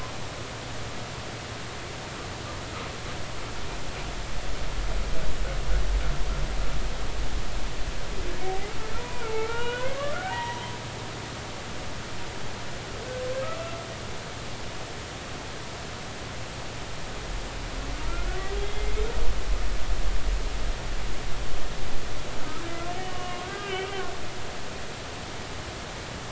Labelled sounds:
9.0	10.6	humpback whale, 0.83 to 3.0 kHz
18.6	19.0	humpback whale, 2.0 to 2.1 kHz
19.6	19.8	humpback whale, 3.2 to 3.4 kHz
23.0	23.9	humpback whale, 1.0 to 3.3 kHz

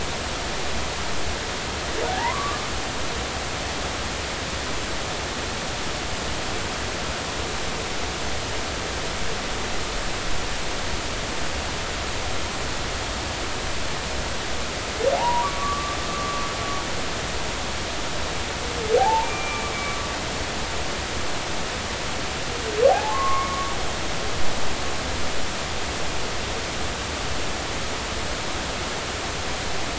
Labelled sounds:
2.1	2.7	humpback whale, 0.80 to 1.2 kHz
15.1	16.4	humpback whale, 0.80 to 1.3 kHz
19.0	20.0	humpback whale, 0.80 to 2.5 kHz
22.9	23.7	humpback whale, 0.80 to 2.2 kHz

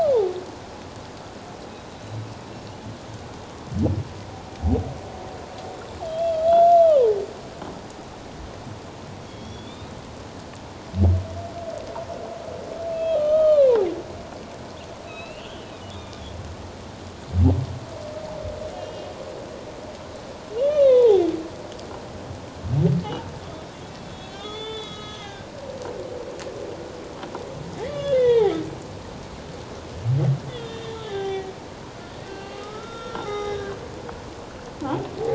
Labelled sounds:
1.6	2.2	humpback whale, 3.8 to 4.0 kHz
6.0	6.7	humpback whale, 3.1 to 3.6 kHz
9.3	9.9	humpback whale, 3.2 to 3.9 kHz
12.9	13.7	humpback whale, 1.1 to 3.2 kHz
15.1	16.2	humpback whale, 2.4 to 4.3 kHz
18.7	19.1	humpback whale, 2.8 to 3.3 kHz
20.6	21.2	humpback whale, 0.78 to 3.9 kHz
24.1	25.5	humpback whale, 1.2 to 6.4 kHz
27.8	28.5	humpback whale, 0.78 to 3.8 kHz
30.5	31.5	humpback whale, 0.78 to 3.8 kHz
32.2	33.8	humpback whale, 0.78 to 4.4 kHz

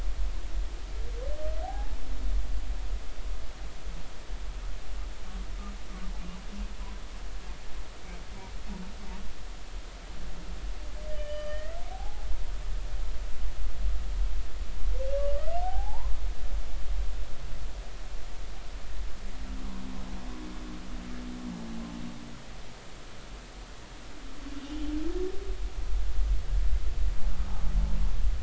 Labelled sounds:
1.6	1.9	humpback whale, 0.80 to 0.90 kHz
11.1	12.3	humpback whale, 0.80 to 4.8 kHz
15.6	16.1	humpback whale, 0.80 to 1.1 kHz

